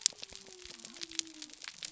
{"label": "biophony", "recorder": "SoundTrap 300"}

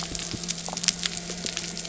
{"label": "anthrophony, boat engine", "recorder": "SoundTrap 300"}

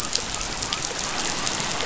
{"label": "biophony", "recorder": "SoundTrap 500"}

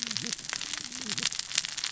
{"label": "biophony, cascading saw", "recorder": "SoundTrap 600 or HydroMoth"}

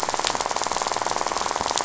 {"label": "biophony, rattle", "recorder": "SoundTrap 500"}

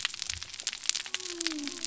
{"label": "biophony", "recorder": "SoundTrap 300"}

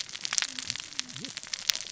{"label": "biophony, cascading saw", "recorder": "SoundTrap 600 or HydroMoth"}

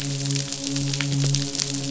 {"label": "biophony, midshipman", "recorder": "SoundTrap 500"}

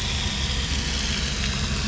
{"label": "anthrophony, boat engine", "recorder": "SoundTrap 500"}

